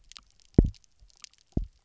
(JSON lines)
{"label": "biophony, double pulse", "recorder": "SoundTrap 300"}